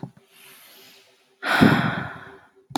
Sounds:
Sigh